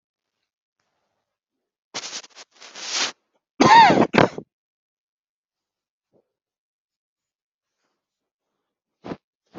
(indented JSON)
{
  "expert_labels": [
    {
      "quality": "poor",
      "cough_type": "unknown",
      "dyspnea": false,
      "wheezing": false,
      "stridor": false,
      "choking": false,
      "congestion": false,
      "nothing": true,
      "diagnosis": "lower respiratory tract infection",
      "severity": "mild"
    }
  ],
  "age": 20,
  "gender": "female",
  "respiratory_condition": true,
  "fever_muscle_pain": true,
  "status": "COVID-19"
}